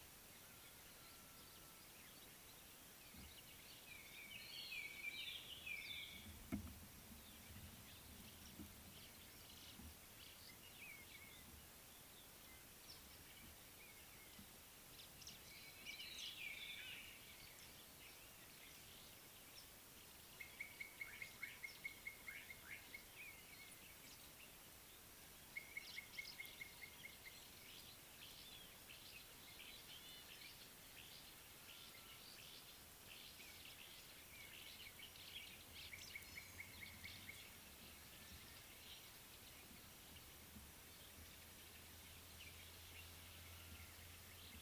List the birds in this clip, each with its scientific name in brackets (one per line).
Slate-colored Boubou (Laniarius funebris)
White-browed Robin-Chat (Cossypha heuglini)